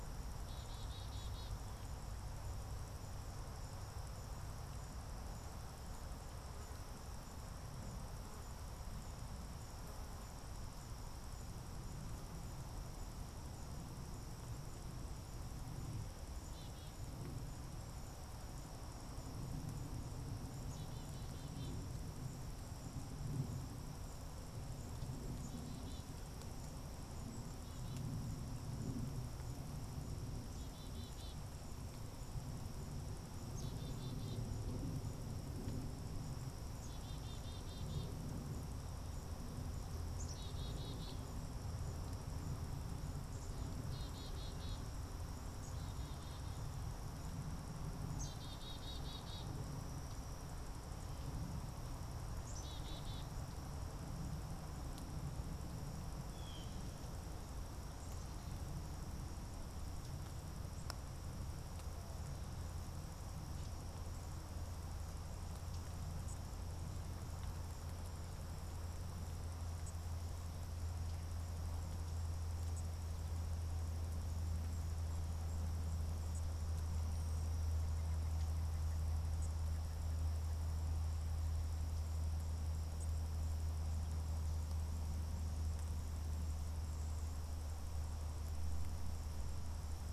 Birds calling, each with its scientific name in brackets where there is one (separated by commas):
Black-capped Chickadee (Poecile atricapillus), Blue Jay (Cyanocitta cristata), unidentified bird